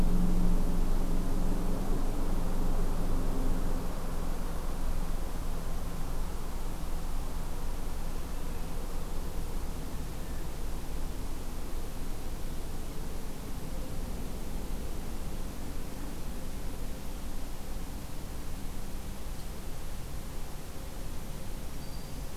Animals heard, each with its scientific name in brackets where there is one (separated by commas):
Black-throated Green Warbler (Setophaga virens)